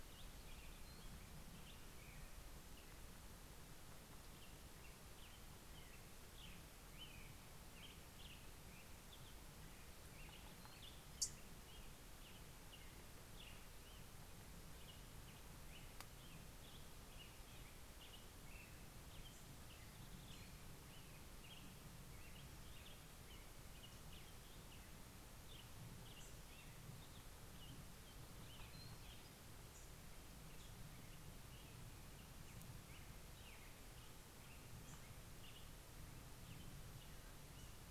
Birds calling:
Black-headed Grosbeak (Pheucticus melanocephalus), American Robin (Turdus migratorius), Yellow-rumped Warbler (Setophaga coronata)

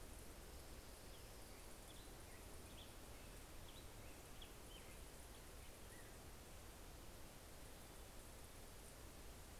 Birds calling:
Orange-crowned Warbler (Leiothlypis celata), Black-headed Grosbeak (Pheucticus melanocephalus)

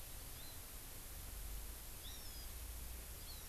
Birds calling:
Hawaii Amakihi (Chlorodrepanis virens)

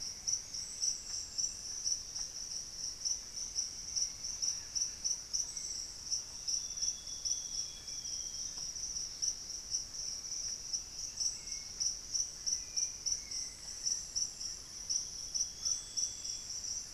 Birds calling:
unidentified bird, Amazonian Grosbeak (Cyanoloxia rothschildii), Black-faced Antthrush (Formicarius analis), Cinnamon-rumped Foliage-gleaner (Philydor pyrrhodes), Hauxwell's Thrush (Turdus hauxwelli)

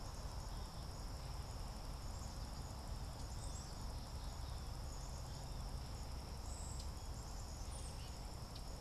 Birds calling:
Common Yellowthroat (Geothlypis trichas), Cedar Waxwing (Bombycilla cedrorum), Black-capped Chickadee (Poecile atricapillus)

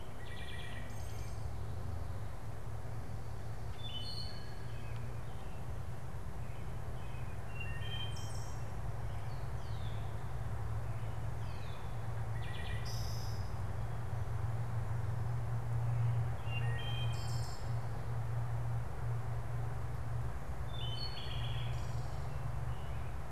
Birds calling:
Red-winged Blackbird (Agelaius phoeniceus), Wood Thrush (Hylocichla mustelina), American Robin (Turdus migratorius)

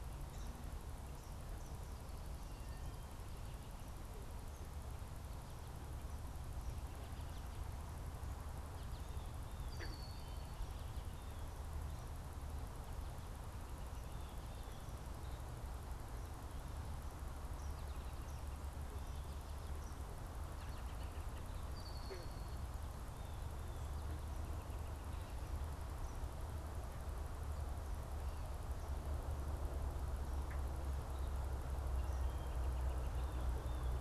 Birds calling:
Red-winged Blackbird (Agelaius phoeniceus), Blue Jay (Cyanocitta cristata), Eastern Kingbird (Tyrannus tyrannus), unidentified bird

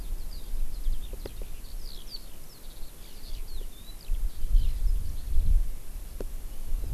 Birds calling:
Eurasian Skylark (Alauda arvensis)

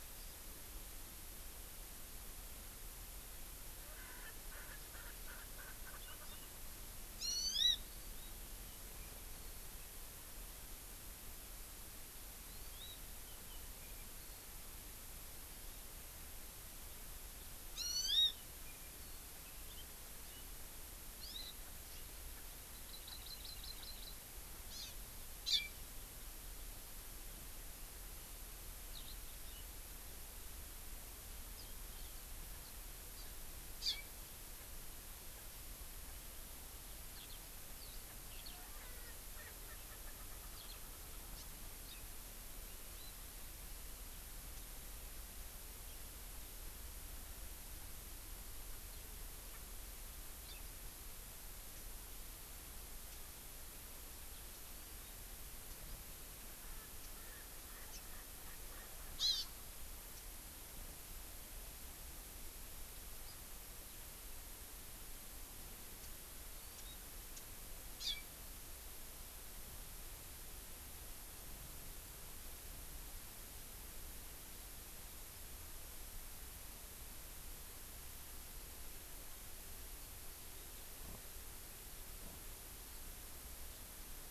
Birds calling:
Hawaii Amakihi (Chlorodrepanis virens), Eurasian Skylark (Alauda arvensis), Erckel's Francolin (Pternistis erckelii)

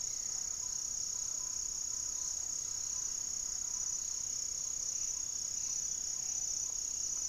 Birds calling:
unidentified bird, Buff-breasted Wren (Cantorchilus leucotis), Thrush-like Wren (Campylorhynchus turdinus), Gray-fronted Dove (Leptotila rufaxilla)

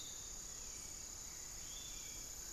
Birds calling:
Long-winged Antwren (Myrmotherula longipennis), Piratic Flycatcher (Legatus leucophaius), Hauxwell's Thrush (Turdus hauxwelli)

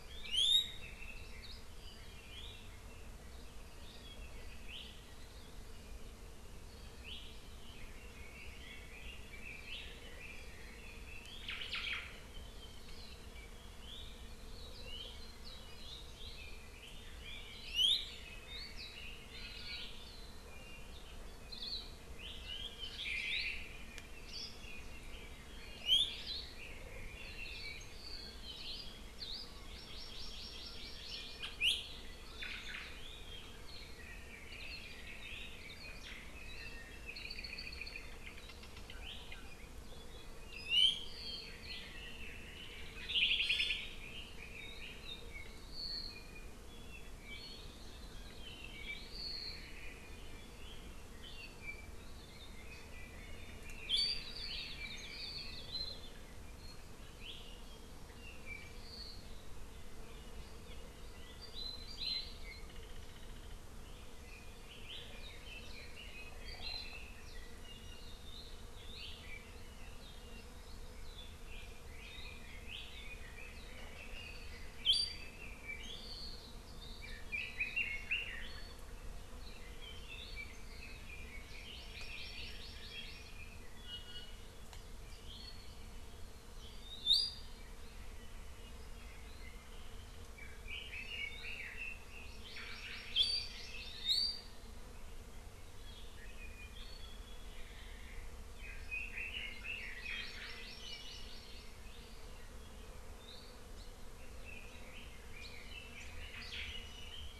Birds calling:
Hawaii Amakihi (Chlorodrepanis virens), Omao (Myadestes obscurus), Hawaii Akepa (Loxops coccineus), Apapane (Himatione sanguinea), Iiwi (Drepanis coccinea), Red-billed Leiothrix (Leiothrix lutea)

